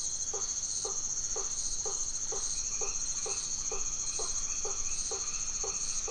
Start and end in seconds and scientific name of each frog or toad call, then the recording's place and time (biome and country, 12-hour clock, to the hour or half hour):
0.0	6.1	Boana faber
2.5	6.1	Boana albomarginata
Atlantic Forest, Brazil, 9pm